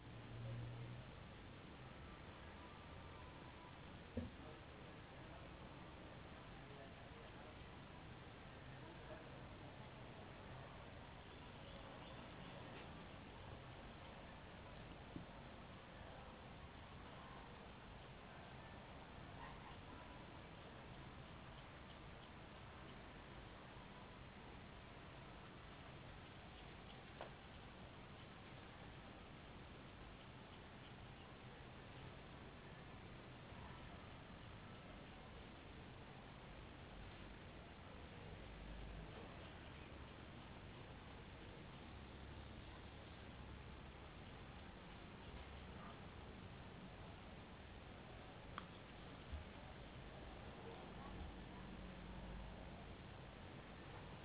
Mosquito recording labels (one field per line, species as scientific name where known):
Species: no mosquito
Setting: insect culture